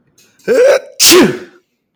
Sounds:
Sneeze